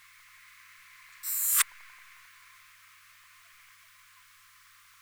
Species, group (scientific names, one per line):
Poecilimon affinis
Orthoptera